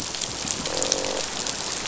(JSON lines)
{"label": "biophony, croak", "recorder": "SoundTrap 500"}